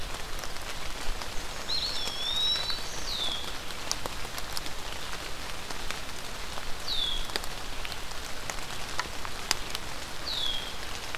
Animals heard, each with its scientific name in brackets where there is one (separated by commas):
Black-throated Green Warbler (Setophaga virens), Eastern Wood-Pewee (Contopus virens), Red-winged Blackbird (Agelaius phoeniceus)